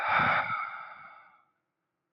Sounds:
Sigh